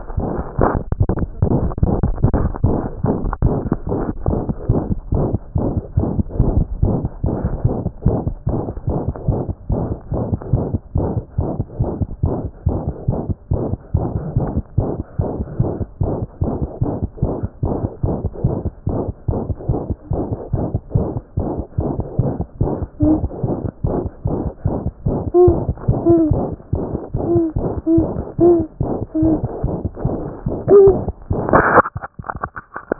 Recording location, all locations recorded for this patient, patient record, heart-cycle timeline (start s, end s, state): aortic valve (AV)
aortic valve (AV)+mitral valve (MV)
#Age: Infant
#Sex: Male
#Height: 61.0 cm
#Weight: 4.3 kg
#Pregnancy status: False
#Murmur: Present
#Murmur locations: aortic valve (AV)+mitral valve (MV)
#Most audible location: aortic valve (AV)
#Systolic murmur timing: Holosystolic
#Systolic murmur shape: Decrescendo
#Systolic murmur grading: I/VI
#Systolic murmur pitch: High
#Systolic murmur quality: Harsh
#Diastolic murmur timing: nan
#Diastolic murmur shape: nan
#Diastolic murmur grading: nan
#Diastolic murmur pitch: nan
#Diastolic murmur quality: nan
#Outcome: Abnormal
#Campaign: 2014 screening campaign
0.00	4.22	unannotated
4.22	4.28	diastole
4.28	4.40	S1
4.40	4.48	systole
4.48	4.54	S2
4.54	4.68	diastole
4.68	4.82	S1
4.82	4.90	systole
4.90	4.98	S2
4.98	5.14	diastole
5.14	5.26	S1
5.26	5.32	systole
5.32	5.38	S2
5.38	5.55	diastole
5.55	5.68	S1
5.68	5.76	systole
5.76	5.82	S2
5.82	5.98	diastole
5.98	6.08	S1
6.08	6.18	systole
6.18	6.24	S2
6.24	6.39	diastole
6.39	6.52	S1
6.52	6.58	systole
6.58	6.66	S2
6.66	6.83	diastole
6.83	6.96	S1
6.96	7.02	systole
7.02	7.08	S2
7.08	7.24	diastole
7.24	7.36	S1
7.36	7.44	systole
7.44	7.52	S2
7.52	7.66	diastole
7.66	7.74	S1
7.74	7.82	systole
7.82	7.90	S2
7.90	8.06	diastole
8.06	8.18	S1
8.18	8.26	systole
8.26	8.34	S2
8.34	8.48	diastole
8.48	8.60	S1
8.60	8.66	systole
8.66	8.74	S2
8.74	8.88	diastole
8.88	9.00	S1
9.00	9.06	systole
9.06	9.14	S2
9.14	9.28	diastole
9.28	9.40	S1
9.40	9.48	systole
9.48	9.54	S2
9.54	9.70	diastole
9.70	9.82	S1
9.82	9.88	systole
9.88	9.96	S2
9.96	10.12	diastole
10.12	10.24	S1
10.24	10.30	systole
10.30	10.38	S2
10.38	10.52	diastole
10.52	10.64	S1
10.64	10.72	systole
10.72	10.80	S2
10.80	10.96	diastole
10.96	11.08	S1
11.08	11.16	systole
11.16	11.22	S2
11.22	11.38	diastole
11.38	11.48	S1
11.48	11.58	systole
11.58	11.64	S2
11.64	11.80	diastole
11.80	11.90	S1
11.90	12.00	systole
12.00	12.08	S2
12.08	12.24	diastole
12.24	12.34	S1
12.34	12.42	systole
12.42	12.50	S2
12.50	12.66	diastole
12.66	12.78	S1
12.78	12.86	systole
12.86	12.94	S2
12.94	13.08	diastole
13.08	13.18	S1
13.18	13.28	systole
13.28	13.36	S2
13.36	13.52	diastole
13.52	13.62	S1
13.62	13.70	systole
13.70	13.78	S2
13.78	13.94	diastole
13.94	14.06	S1
14.06	14.14	systole
14.14	14.22	S2
14.22	14.36	diastole
14.36	14.48	S1
14.48	14.56	systole
14.56	14.62	S2
14.62	14.78	diastole
14.78	14.90	S1
14.90	14.96	systole
14.96	15.04	S2
15.04	15.20	diastole
15.20	15.30	S1
15.30	15.38	systole
15.38	15.46	S2
15.46	15.60	diastole
15.60	15.70	S1
15.70	15.80	systole
15.80	15.86	S2
15.86	16.02	diastole
16.02	16.14	S1
16.14	16.20	systole
16.20	16.28	S2
16.28	16.42	diastole
16.42	16.54	S1
16.54	16.62	systole
16.62	16.68	S2
16.68	16.82	diastole
16.82	16.94	S1
16.94	17.02	systole
17.02	17.08	S2
17.08	17.22	diastole
17.22	17.34	S1
17.34	17.42	systole
17.42	17.48	S2
17.48	17.64	diastole
17.64	17.74	S1
17.74	17.82	systole
17.82	17.90	S2
17.90	18.04	diastole
18.04	18.16	S1
18.16	18.24	systole
18.24	18.30	S2
18.30	18.44	diastole
18.44	18.56	S1
18.56	18.64	systole
18.64	18.72	S2
18.72	18.88	diastole
18.88	19.00	S1
19.00	19.06	systole
19.06	19.14	S2
19.14	19.30	diastole
19.30	19.40	S1
19.40	19.48	systole
19.48	19.56	S2
19.56	19.68	diastole
19.68	19.80	S1
19.80	19.88	systole
19.88	19.96	S2
19.96	20.12	diastole
20.12	20.24	S1
20.24	20.30	systole
20.30	20.38	S2
20.38	20.54	diastole
20.54	20.66	S1
20.66	20.74	systole
20.74	20.80	S2
20.80	20.96	diastole
20.96	21.06	S1
21.06	21.14	systole
21.14	21.22	S2
21.22	21.38	diastole
21.38	21.48	S1
21.48	21.56	systole
21.56	21.64	S2
21.64	21.78	diastole
21.78	21.90	S1
21.90	21.98	systole
21.98	22.04	S2
22.04	22.20	diastole
22.20	22.32	S1
22.32	22.38	systole
22.38	22.46	S2
22.46	22.60	diastole
22.60	22.72	S1
22.72	22.80	systole
22.80	22.88	S2
22.88	23.02	diastole
23.02	32.99	unannotated